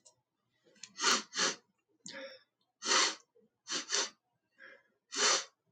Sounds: Sniff